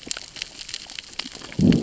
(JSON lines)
{"label": "biophony, growl", "recorder": "SoundTrap 600 or HydroMoth"}